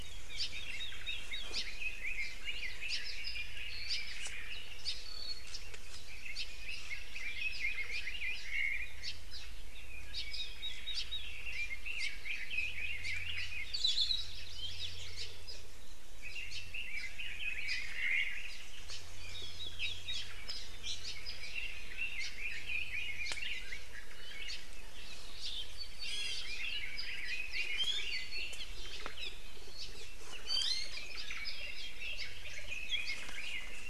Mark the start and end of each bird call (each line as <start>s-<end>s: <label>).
0.0s-4.8s: Red-billed Leiothrix (Leiothrix lutea)
0.3s-0.6s: Apapane (Himatione sanguinea)
1.5s-1.7s: Apapane (Himatione sanguinea)
2.8s-3.1s: Hawaii Creeper (Loxops mana)
3.2s-3.6s: Apapane (Himatione sanguinea)
3.8s-4.1s: Hawaii Creeper (Loxops mana)
4.8s-5.1s: Hawaii Creeper (Loxops mana)
5.0s-5.6s: Apapane (Himatione sanguinea)
6.0s-8.4s: Red-billed Leiothrix (Leiothrix lutea)
6.3s-6.5s: Hawaii Creeper (Loxops mana)
8.4s-9.1s: Omao (Myadestes obscurus)
9.0s-9.2s: Hawaii Creeper (Loxops mana)
9.3s-9.5s: Apapane (Himatione sanguinea)
10.0s-13.8s: Red-billed Leiothrix (Leiothrix lutea)
10.9s-11.1s: Hawaii Creeper (Loxops mana)
11.9s-12.2s: Hawaii Creeper (Loxops mana)
12.9s-13.3s: Hawaii Creeper (Loxops mana)
13.7s-14.3s: Hawaii Akepa (Loxops coccineus)
14.5s-14.9s: Apapane (Himatione sanguinea)
15.1s-15.4s: Hawaii Creeper (Loxops mana)
15.4s-15.7s: Apapane (Himatione sanguinea)
16.1s-18.6s: Red-billed Leiothrix (Leiothrix lutea)
16.9s-17.2s: Apapane (Himatione sanguinea)
17.8s-18.5s: Omao (Myadestes obscurus)
18.4s-18.7s: Apapane (Himatione sanguinea)
19.2s-20.4s: Red-billed Leiothrix (Leiothrix lutea)
20.8s-21.0s: Iiwi (Drepanis coccinea)
21.4s-23.9s: Red-billed Leiothrix (Leiothrix lutea)
22.1s-22.4s: Hawaii Creeper (Loxops mana)
23.2s-23.4s: Apapane (Himatione sanguinea)
24.4s-24.7s: Apapane (Himatione sanguinea)
25.3s-25.6s: Apapane (Himatione sanguinea)
26.0s-26.5s: Iiwi (Drepanis coccinea)
26.4s-28.6s: Red-billed Leiothrix (Leiothrix lutea)
27.5s-28.1s: Iiwi (Drepanis coccinea)
28.5s-28.7s: Apapane (Himatione sanguinea)
28.7s-29.2s: Omao (Myadestes obscurus)
29.1s-29.4s: Apapane (Himatione sanguinea)
30.4s-31.0s: Iiwi (Drepanis coccinea)
30.9s-33.8s: Red-billed Leiothrix (Leiothrix lutea)
31.1s-31.7s: Apapane (Himatione sanguinea)
32.1s-32.3s: Apapane (Himatione sanguinea)
33.0s-33.2s: Apapane (Himatione sanguinea)